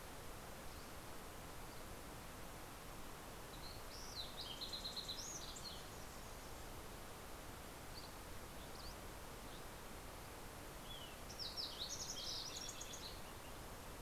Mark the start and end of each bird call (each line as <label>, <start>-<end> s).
Fox Sparrow (Passerella iliaca), 2.7-7.2 s
Dusky Flycatcher (Empidonax oberholseri), 7.4-10.7 s
Fox Sparrow (Passerella iliaca), 10.0-13.9 s